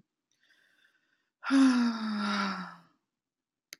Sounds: Sigh